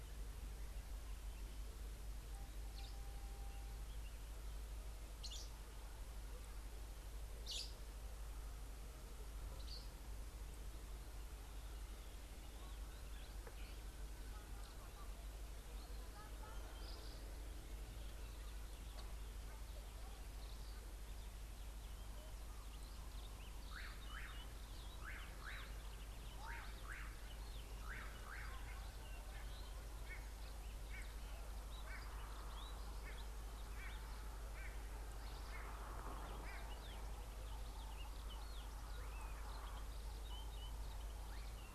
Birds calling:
Fischer's Lovebird (Agapornis fischeri), Slate-colored Boubou (Laniarius funebris), White-bellied Go-away-bird (Corythaixoides leucogaster)

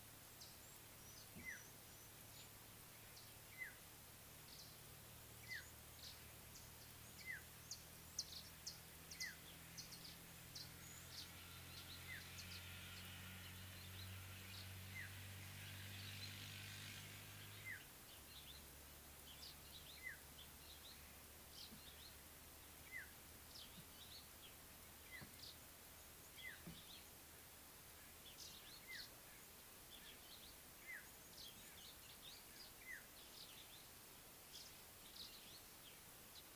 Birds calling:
African Black-headed Oriole (Oriolus larvatus), Mariqua Sunbird (Cinnyris mariquensis)

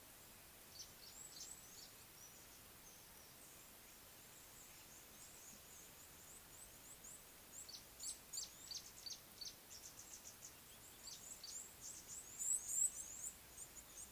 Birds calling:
Gray-backed Camaroptera (Camaroptera brevicaudata), Tawny-flanked Prinia (Prinia subflava), Red-cheeked Cordonbleu (Uraeginthus bengalus)

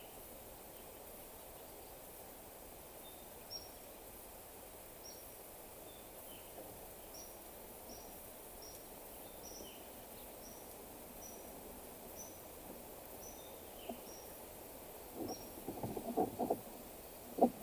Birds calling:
Waller's Starling (Onychognathus walleri), Cinnamon-chested Bee-eater (Merops oreobates)

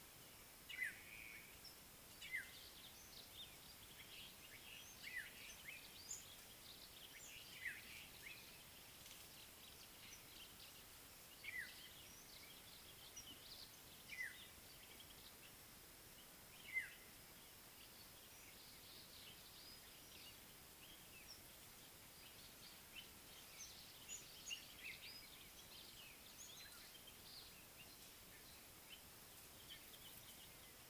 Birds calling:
African Black-headed Oriole (Oriolus larvatus), White-browed Sparrow-Weaver (Plocepasser mahali)

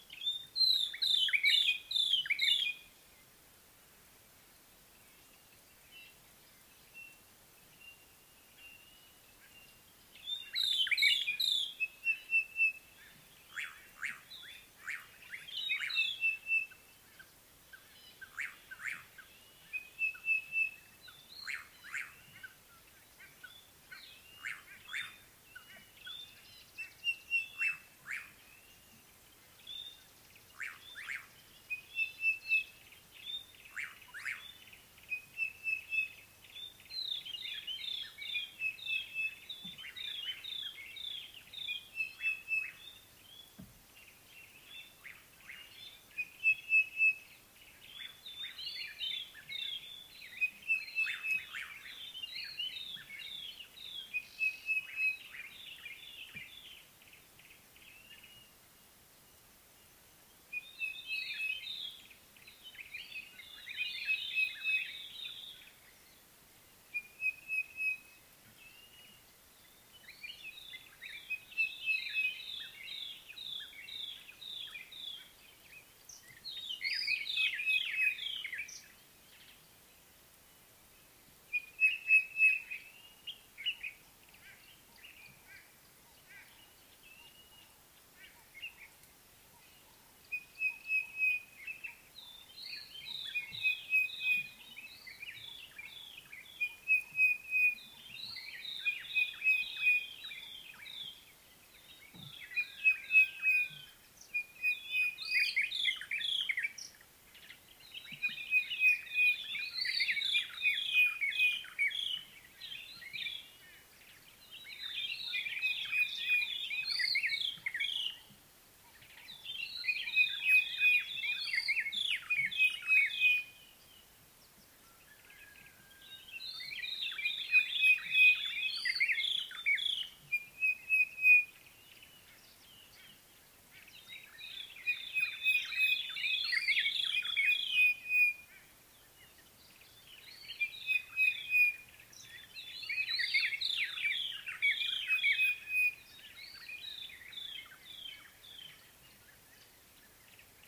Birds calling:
Sulphur-breasted Bushshrike (Telophorus sulfureopectus), White-browed Robin-Chat (Cossypha heuglini), Slate-colored Boubou (Laniarius funebris)

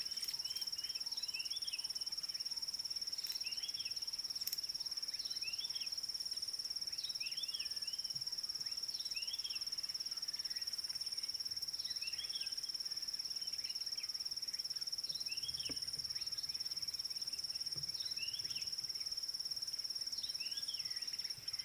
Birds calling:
White Helmetshrike (Prionops plumatus), Red-backed Scrub-Robin (Cercotrichas leucophrys)

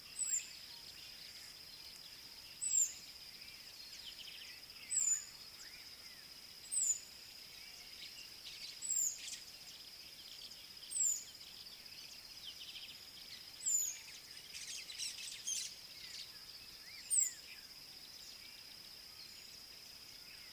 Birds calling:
White-browed Sparrow-Weaver (Plocepasser mahali), Southern Black-Flycatcher (Melaenornis pammelaina)

